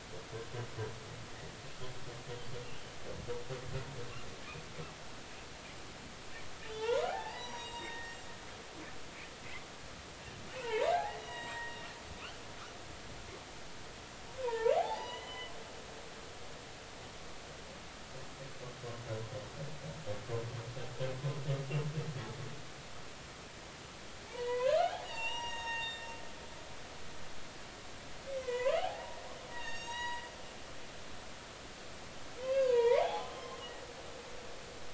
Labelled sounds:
6.7	8.3	humpback whale, 0.80 to 7.6 kHz
10.5	11.9	humpback whale, 0.80 to 7.7 kHz
14.4	15.5	humpback whale, 0.80 to 3.1 kHz
24.3	26.1	humpback whale, 0.80 to 7.6 kHz
28.4	29.2	humpback whale, 0.80 to 7.2 kHz
29.5	30.3	humpback whale, 0.86 to 7.7 kHz
32.4	33.3	humpback whale, 0.80 to 4.9 kHz

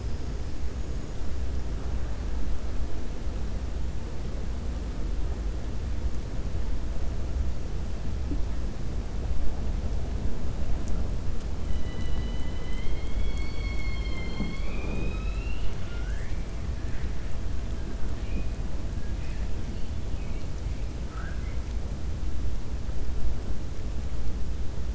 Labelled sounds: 20.1	20.5	killer whale, 2.2 to 3.5 kHz
21.0	21.6	killer whale, 0.73 to 2.3 kHz

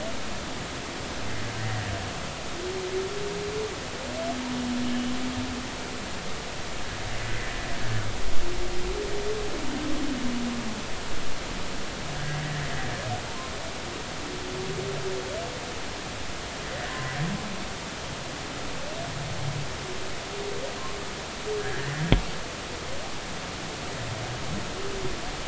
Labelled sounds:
7.2	7.5	humpback whale, 1.8 to 2.1 kHz
16.9	17.2	humpback whale, 0.99 to 1.1 kHz
21.6	21.9	humpback whale, 1.5 to 1.9 kHz

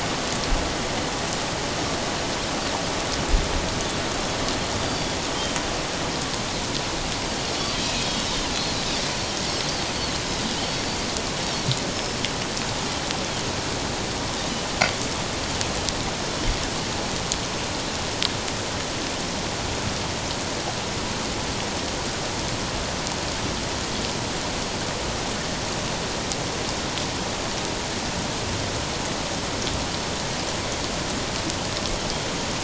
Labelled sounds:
7.7	8.1	Pacific white-sided dolphin, 2.4 to 2.6 kHz

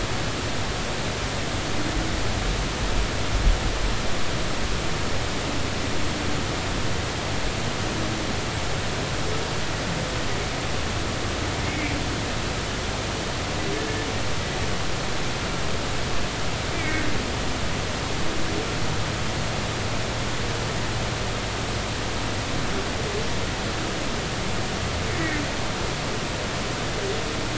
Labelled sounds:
11.6	12.0	humpback whale, 2.0 to 2.4 kHz
16.7	17.1	humpback whale, 1.8 to 2.4 kHz

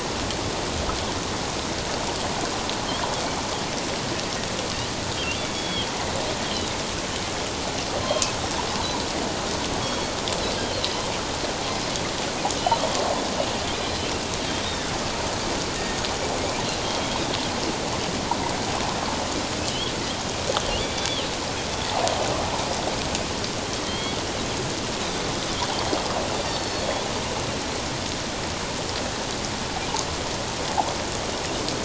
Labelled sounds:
5.4	5.9	Pacific white-sided dolphin, 2.2 to 3.4 kHz
9.8	10.1	Pacific white-sided dolphin, 3.2 to 3.4 kHz
19.7	19.9	Pacific white-sided dolphin, 2.9 to 3.5 kHz
23.8	24.2	Pacific white-sided dolphin, 3.1 to 3.4 kHz
26.4	27.0	Pacific white-sided dolphin, 3.3 to 4.8 kHz

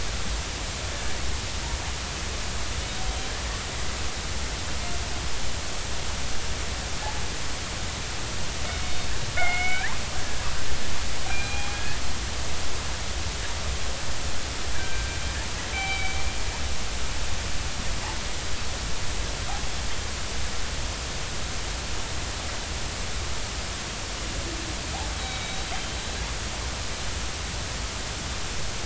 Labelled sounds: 9.4	9.9	killer whale, northern resident, 1.3 to 3.0 kHz
11.3	12.0	killer whale, northern resident, 0.80 to 4.1 kHz
14.7	16.2	killer whale, northern resident, 1.5 to 3.9 kHz
25.2	25.7	killer whale, northern resident, 2.2 to 3.9 kHz

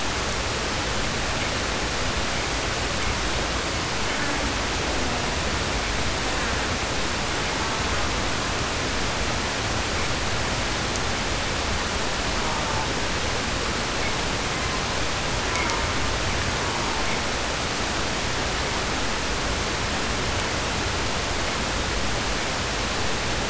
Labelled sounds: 3.9	4.4	killer whale, southern resident, 0.54 to 3.3 kHz
6.1	6.8	killer whale, southern resident, 0.45 to 2.3 kHz
7.4	8.1	killer whale, southern resident, 0.43 to 1.9 kHz
12.1	12.9	killer whale, southern resident, 0.52 to 1.7 kHz
15.4	17.2	killer whale, southern resident, 0.47 to 2.4 kHz

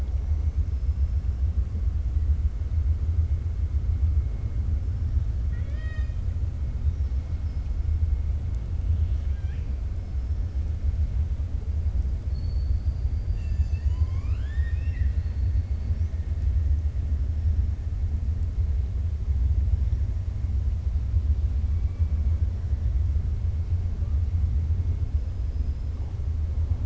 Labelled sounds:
5.4	6.2	killer whale, 0.60 to 7.5 kHz
8.9	9.7	killer whale, 1.6 to 4.2 kHz
21.7	22.4	killer whale, 1.3 to 2.7 kHz
25.4	25.9	killer whale, 5.0 to 5.3 kHz

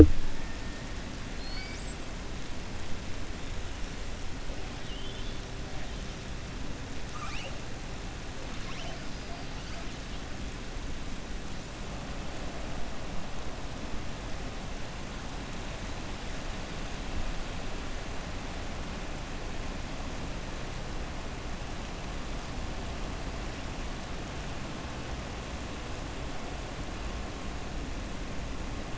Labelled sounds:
4.7	5.4	killer whale, southern resident, 2.8 to 3.9 kHz

